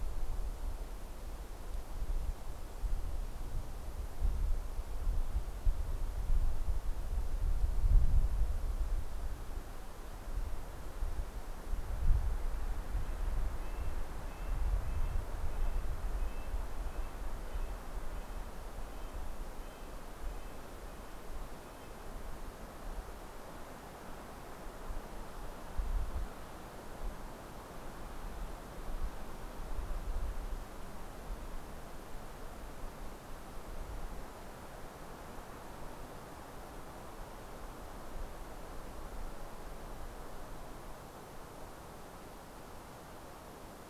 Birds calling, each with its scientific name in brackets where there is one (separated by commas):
Red-breasted Nuthatch (Sitta canadensis)